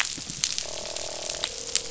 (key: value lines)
label: biophony, croak
recorder: SoundTrap 500